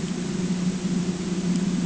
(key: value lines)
label: ambient
recorder: HydroMoth